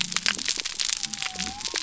{"label": "biophony", "recorder": "SoundTrap 300"}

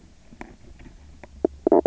{"label": "biophony, knock croak", "recorder": "SoundTrap 300"}
{"label": "anthrophony, boat engine", "recorder": "SoundTrap 300"}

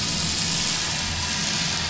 {"label": "anthrophony, boat engine", "recorder": "SoundTrap 500"}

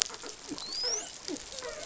{"label": "biophony", "recorder": "SoundTrap 500"}
{"label": "biophony, dolphin", "recorder": "SoundTrap 500"}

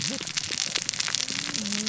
{"label": "biophony, cascading saw", "recorder": "SoundTrap 600 or HydroMoth"}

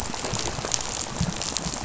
{"label": "biophony, rattle", "recorder": "SoundTrap 500"}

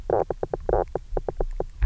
{"label": "biophony, knock croak", "recorder": "SoundTrap 300"}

